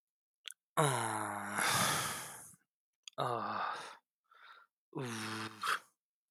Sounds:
Sigh